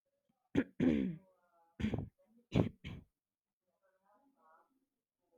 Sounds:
Throat clearing